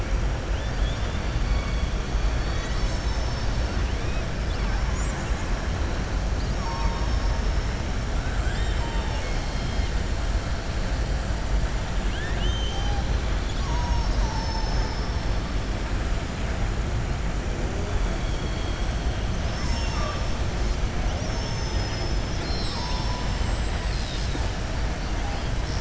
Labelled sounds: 0.5	1.2	killer whale, southern resident, 2.4 to 3.6 kHz
12.0	13.0	killer whale, southern resident, 1.6 to 6.3 kHz

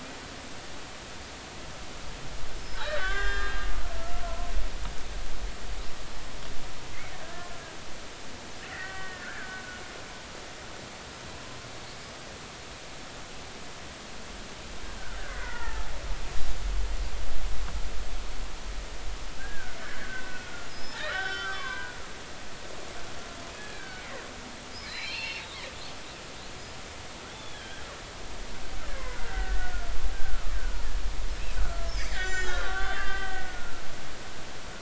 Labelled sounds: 2.7	3.7	killer whale, Bigg's (transient), 0.99 to 5.2 kHz
7.2	7.5	killer whale, Bigg's (transient), 1.6 to 1.8 kHz
8.7	9.6	killer whale, Bigg's (transient), 1.1 to 2.0 kHz
15.2	15.9	killer whale, Bigg's (transient), 0.80 to 2.1 kHz
19.4	20.5	killer whale, Bigg's (transient), 1.4 to 1.9 kHz
20.7	22.0	killer whale, Bigg's (transient), 0.93 to 5.4 kHz
23.6	25.4	killer whale, Bigg's (transient), 1.4 to 4.6 kHz
27.3	27.8	killer whale, Bigg's (transient), 1.5 to 3.6 kHz
28.9	30.5	killer whale, Bigg's (transient), 1.2 to 2.3 kHz
31.6	33.8	killer whale, Bigg's (transient), 1.0 to 7.6 kHz

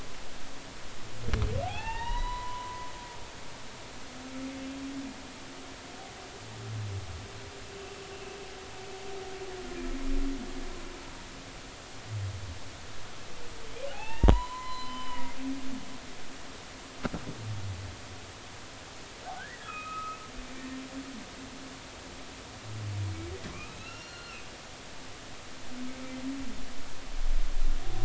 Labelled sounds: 1.7	2.9	humpback whale, 0.80 to 4.0 kHz
7.8	8.1	humpback whale, 2.6 to 2.7 kHz
13.9	15.2	humpback whale, 0.80 to 7.1 kHz
19.4	20.2	humpback whale, 1.2 to 2.7 kHz
23.5	24.4	humpback whale, 0.99 to 5.7 kHz

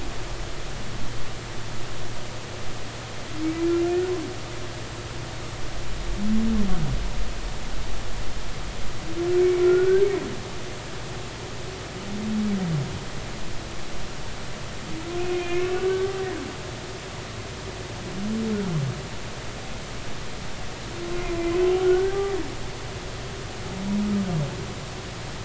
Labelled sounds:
9.6	10.1	humpback whale, 1.3 to 1.6 kHz
15.3	16.0	humpback whale, 1.0 to 2.7 kHz
21.2	22.2	humpback whale, 1.4 to 2.6 kHz

